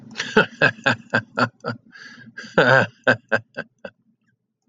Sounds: Laughter